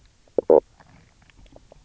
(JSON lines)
{"label": "biophony, knock croak", "recorder": "SoundTrap 300"}